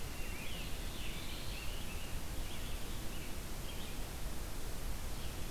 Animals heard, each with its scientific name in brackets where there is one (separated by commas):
Red-eyed Vireo (Vireo olivaceus), Black-throated Blue Warbler (Setophaga caerulescens), Scarlet Tanager (Piranga olivacea)